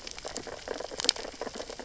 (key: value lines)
label: biophony, sea urchins (Echinidae)
recorder: SoundTrap 600 or HydroMoth